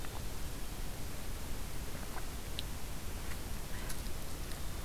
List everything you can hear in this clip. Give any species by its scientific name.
forest ambience